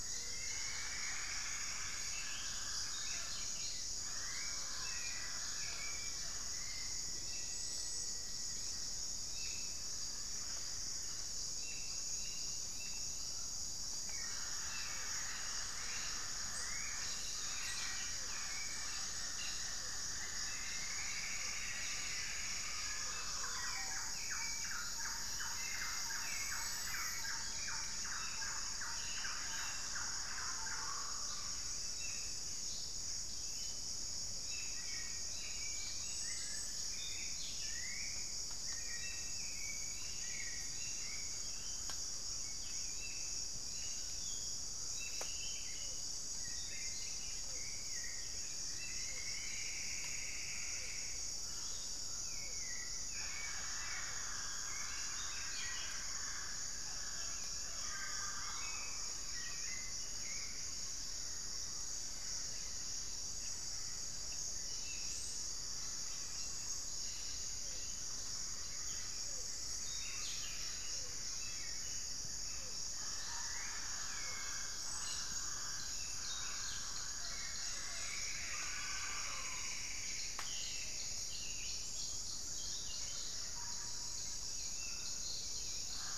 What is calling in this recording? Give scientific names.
Myrmelastes hyperythrus, Turdus hauxwelli, Campylorhynchus turdinus, Patagioenas plumbea